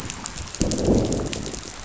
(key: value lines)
label: biophony, growl
recorder: SoundTrap 500